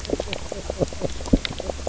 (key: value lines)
label: biophony, knock croak
recorder: SoundTrap 300